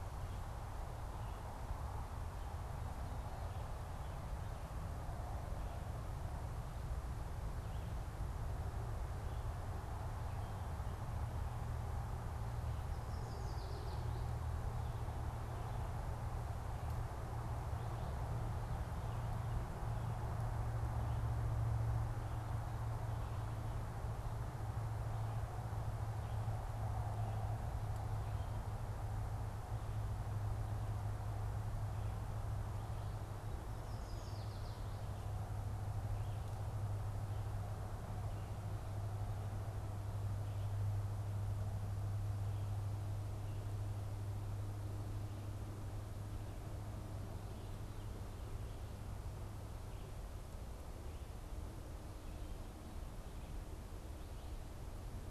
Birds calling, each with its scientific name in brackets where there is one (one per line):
Yellow Warbler (Setophaga petechia)